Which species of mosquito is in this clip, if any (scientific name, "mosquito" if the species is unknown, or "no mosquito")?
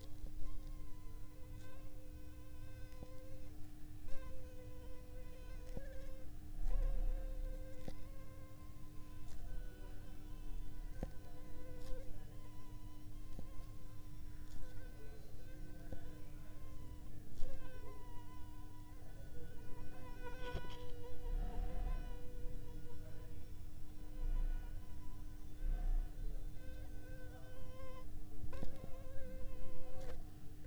Anopheles funestus s.s.